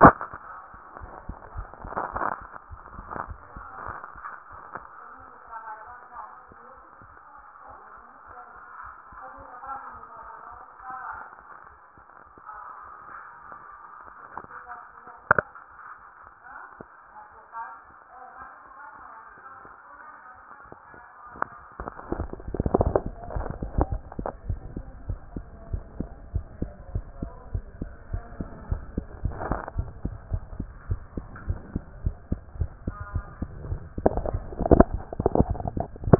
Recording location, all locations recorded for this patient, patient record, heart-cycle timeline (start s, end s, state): mitral valve (MV)
aortic valve (AV)+pulmonary valve (PV)+tricuspid valve (TV)+mitral valve (MV)
#Age: Child
#Sex: Male
#Height: 138.0 cm
#Weight: 33.0 kg
#Pregnancy status: False
#Murmur: Absent
#Murmur locations: nan
#Most audible location: nan
#Systolic murmur timing: nan
#Systolic murmur shape: nan
#Systolic murmur grading: nan
#Systolic murmur pitch: nan
#Systolic murmur quality: nan
#Diastolic murmur timing: nan
#Diastolic murmur shape: nan
#Diastolic murmur grading: nan
#Diastolic murmur pitch: nan
#Diastolic murmur quality: nan
#Outcome: Normal
#Campaign: 2014 screening campaign
0.00	24.46	unannotated
24.46	24.60	S1
24.60	24.74	systole
24.74	24.84	S2
24.84	25.06	diastole
25.06	25.20	S1
25.20	25.34	systole
25.34	25.44	S2
25.44	25.70	diastole
25.70	25.84	S1
25.84	25.98	systole
25.98	26.08	S2
26.08	26.34	diastole
26.34	26.46	S1
26.46	26.60	systole
26.60	26.72	S2
26.72	26.92	diastole
26.92	27.06	S1
27.06	27.20	systole
27.20	27.32	S2
27.32	27.52	diastole
27.52	27.66	S1
27.66	27.80	systole
27.80	27.90	S2
27.90	28.12	diastole
28.12	28.24	S1
28.24	28.38	systole
28.38	28.50	S2
28.50	28.70	diastole
28.70	28.84	S1
28.84	28.96	systole
28.96	29.06	S2
29.06	29.24	diastole
29.24	29.38	S1
29.38	29.48	systole
29.48	29.60	S2
29.60	29.76	diastole
29.76	29.90	S1
29.90	30.04	systole
30.04	30.14	S2
30.14	30.32	diastole
30.32	30.44	S1
30.44	30.58	systole
30.58	30.68	S2
30.68	30.88	diastole
30.88	31.02	S1
31.02	31.16	systole
31.16	31.26	S2
31.26	31.48	diastole
31.48	31.60	S1
31.60	31.74	systole
31.74	31.84	S2
31.84	32.04	diastole
32.04	32.16	S1
32.16	32.30	systole
32.30	32.42	S2
32.42	32.58	diastole
32.58	32.70	S1
32.70	32.86	systole
32.86	32.96	S2
32.96	33.14	diastole
33.14	33.26	S1
33.26	33.38	systole
33.38	33.50	S2
33.50	33.66	diastole
33.66	36.19	unannotated